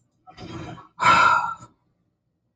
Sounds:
Sigh